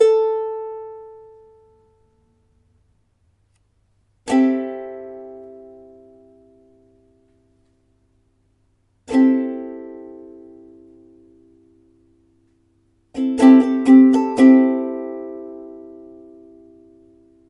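A ukulele is being plucked. 0:00.0 - 0:01.4
A chord is played on a stringed instrument. 0:04.3 - 0:06.9
A chord is played on a stringed instrument. 0:09.1 - 0:11.6
A ukulele is being played. 0:13.1 - 0:17.5

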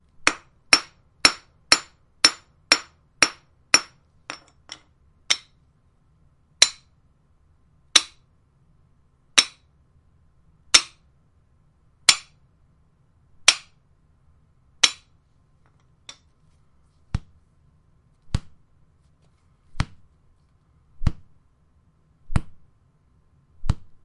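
Metal clanks repeatedly in a pattern. 0:00.1 - 0:15.4
Thumping sounds in a repeating pattern. 0:16.0 - 0:24.0

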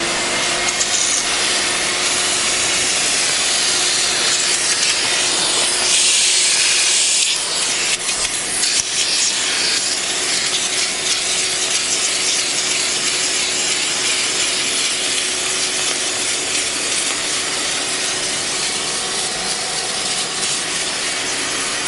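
Continuous mechanical sound of metal machining or grinding. 0:00.0 - 0:21.9

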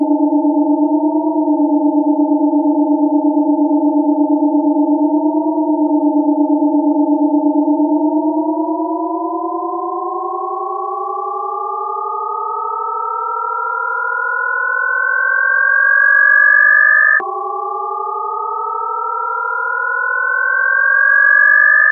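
A synthetic sound continues steadily. 0:00.0 - 0:07.8
A steady synthetic sound with increasing pitch. 0:07.7 - 0:21.9

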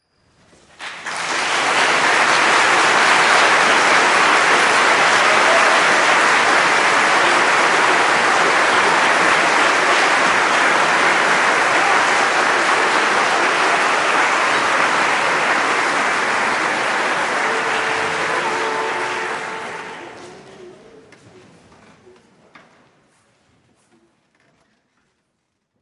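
A group of people clapping in unison with a rhythmic pattern and bursts of applause. 0:00.8 - 0:20.3

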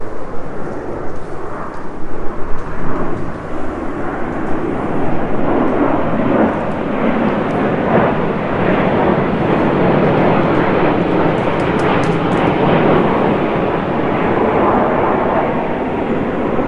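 People moving in the background and an aircraft approaching. 0:00.0 - 0:04.5
An aircraft approaches at low altitude. 0:04.6 - 0:16.7

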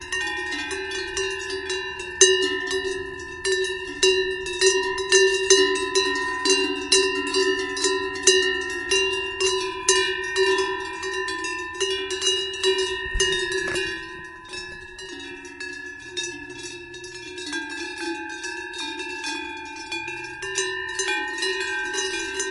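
A cowbell rings rhythmically in a non-periodic manner in a field. 0:00.0 - 0:22.5

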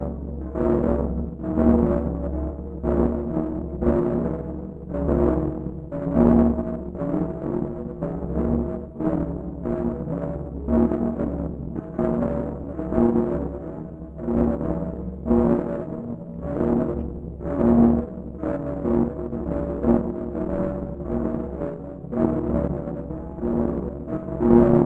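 A distorted, uneven bell ringing continuously. 0:00.1 - 0:24.9

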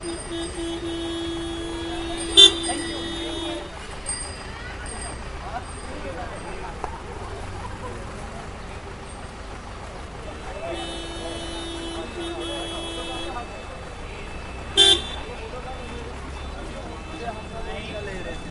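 A car repeatedly honks in traffic. 0:00.0 - 0:03.9
A car horn honks quickly. 0:02.3 - 0:02.6
A bicycle bell rings. 0:04.0 - 0:06.6
A car horn honks repeatedly. 0:10.8 - 0:13.5
A loud, short honk. 0:14.7 - 0:15.1
Muffled chatter. 0:17.8 - 0:18.5

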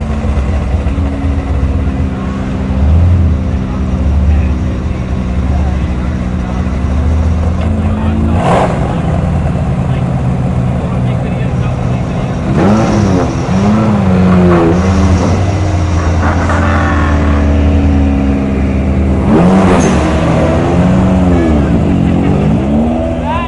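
A car engine hums continuously in the background, revving occasionally with a powerful, throaty noise characterized by low-frequency vibrations and bursts of acceleration. 0:00.0 - 0:23.5
People laughing and talking in the background. 0:00.0 - 0:23.5

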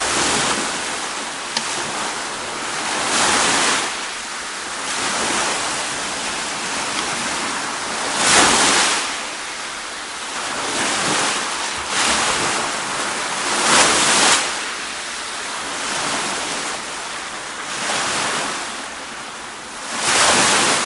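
Waves periodically crash onto a beach. 0:00.0 - 0:20.8

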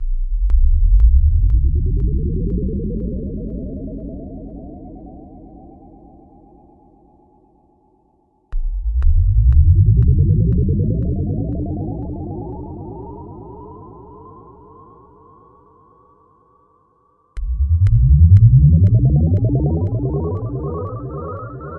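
A computer-generated countdown with three repetitive digital bleeps in a rhythmic, electronic tone. 0:00.0 - 0:05.9
A computer-generated countdown with three repetitive digital bleeps in a rhythmic, electronic tone. 0:08.4 - 0:14.9
A computer-generated countdown with three repetitive digital bleeps in a rhythmic, electronic tone. 0:17.0 - 0:21.8

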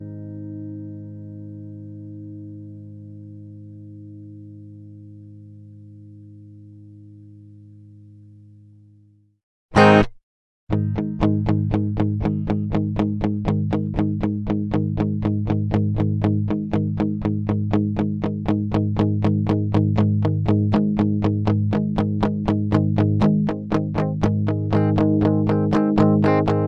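A guitar chord fades out silently. 0:00.0 - 0:09.2
A guitar riff is playing. 0:09.7 - 0:10.2
Guitar chords played gently at 120 bpm, creating a relaxing sound. 0:10.7 - 0:26.7

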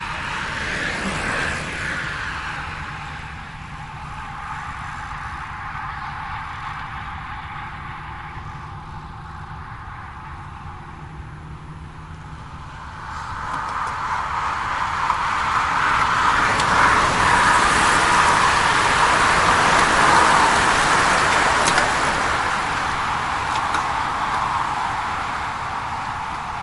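A car passes by nearby. 0:00.0 - 0:03.2
A car passes by in the background. 0:03.8 - 0:08.1
Paddling on a bicycle. 0:03.8 - 0:06.6
Multiple cars are passing nearby. 0:13.0 - 0:26.6

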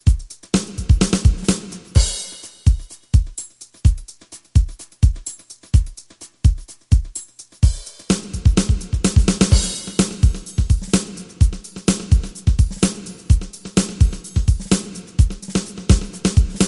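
Fast, flashy drum solo with varying pitches. 0:00.0 - 0:02.6
Clear, repetitive trance-like drumming with a steady rhythm. 0:02.6 - 0:07.6
A short, loud drum solo builds up with increasing intensity. 0:07.6 - 0:10.0
Clear, rhythmic, and repetitive drum solo with complex patterns. 0:10.0 - 0:16.7

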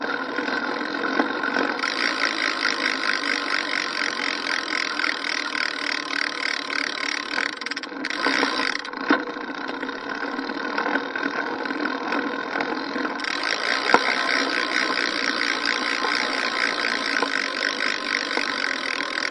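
A bicycle is pedaling in motion. 0:00.0 - 0:19.3

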